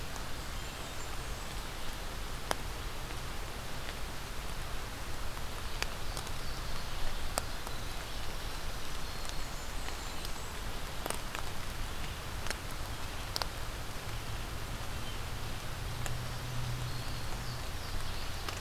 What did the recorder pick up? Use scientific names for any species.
Setophaga fusca, Setophaga virens, Parkesia motacilla